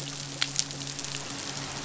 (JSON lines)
{"label": "biophony, midshipman", "recorder": "SoundTrap 500"}